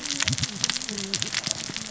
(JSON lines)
{"label": "biophony, cascading saw", "recorder": "SoundTrap 600 or HydroMoth"}